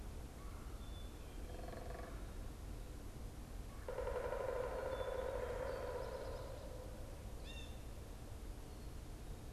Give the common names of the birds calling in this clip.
Black-capped Chickadee, unidentified bird, Pileated Woodpecker, Blue Jay